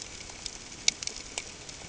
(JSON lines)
{"label": "ambient", "recorder": "HydroMoth"}